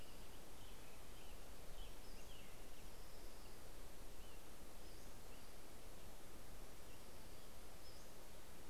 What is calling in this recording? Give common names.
Orange-crowned Warbler, American Robin, Pacific-slope Flycatcher